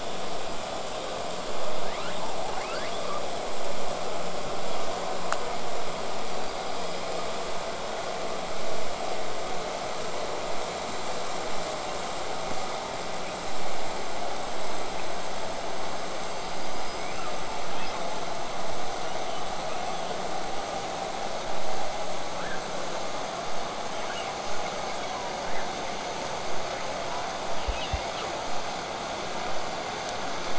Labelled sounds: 1.7	3.3	killer whale, southern resident, L pod, call S02iii, 0.50 to 5.2 kHz
6.3	7.1	killer whale, southern resident, 4.6 to 5.1 kHz
16.3	17.5	killer whale, southern resident, L pod, call S19, 0.98 to 8.0 kHz
17.7	18.1	killer whale, southern resident, 1.5 to 5.3 kHz
19.0	20.2	killer whale, southern resident, 1.9 to 6.2 kHz
22.3	22.6	killer whale, southern resident, 0.66 to 2.3 kHz
23.9	24.4	killer whale, southern resident, 1.2 to 3.5 kHz
25.4	25.8	killer whale, southern resident, 0.98 to 2.4 kHz
27.5	28.4	killer whale, southern resident, 1.9 to 5.0 kHz

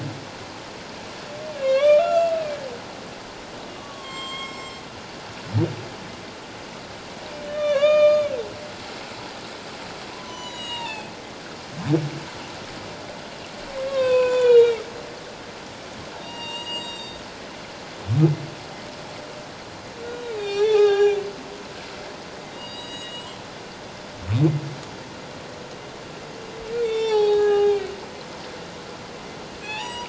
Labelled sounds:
1.6	2.6	humpback whale, 1.0 to 5.6 kHz
3.8	4.8	humpback whale, 1.0 to 7.7 kHz
7.3	8.3	humpback whale, 1.0 to 6.7 kHz
10.1	11.1	humpback whale, 0.78 to 8.0 kHz
13.9	14.8	humpback whale, 0.88 to 7.2 kHz
16.2	17.2	humpback whale, 0.88 to 7.7 kHz
20.0	21.3	humpback whale, 0.78 to 7.0 kHz
22.5	23.4	humpback whale, 1.8 to 7.8 kHz
26.7	27.9	humpback whale, 0.78 to 7.2 kHz
29.6	30.0	humpback whale, 0.81 to 8.0 kHz

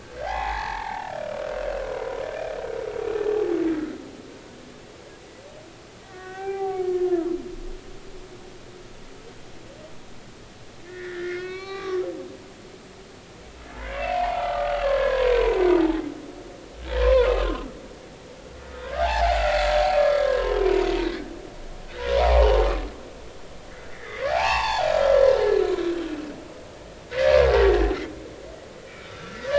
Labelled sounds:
0.2	1.4	humpback whale, 0.80 to 2.4 kHz
1.9	2.2	humpback whale, 0.96 to 1.0 kHz
6.0	7.4	humpback whale, 0.80 to 2.7 kHz
10.8	12.0	humpback whale, 1.1 to 4.6 kHz
13.9	15.6	humpback whale, 0.80 to 3.1 kHz
17.0	17.3	humpback whale, 0.90 to 1.1 kHz
18.9	19.6	humpback whale, 0.80 to 1.9 kHz
20.0	20.5	humpback whale, 0.86 to 1.7 kHz
21.9	22.6	humpback whale, 0.80 to 1.5 kHz
23.9	25.9	humpback whale, 0.80 to 4.7 kHz
27.1	27.8	humpback whale, 1.4 to 2.0 kHz
28.9	29.4	humpback whale, 1.3 to 2.5 kHz

